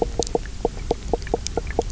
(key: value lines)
label: biophony, knock croak
recorder: SoundTrap 300